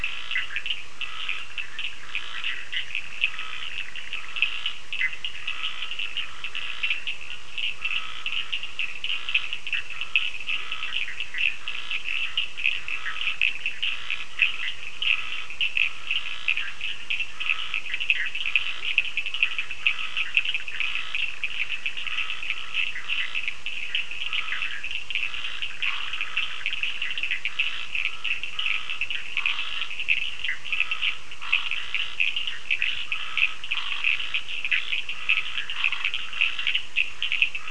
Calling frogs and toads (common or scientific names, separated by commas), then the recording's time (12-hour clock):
Scinax perereca, Cochran's lime tree frog, Bischoff's tree frog
8:30pm